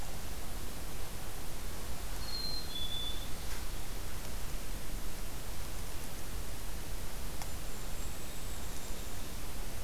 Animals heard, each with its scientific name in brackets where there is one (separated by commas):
Golden-crowned Kinglet (Regulus satrapa), Black-capped Chickadee (Poecile atricapillus)